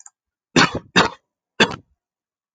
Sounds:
Cough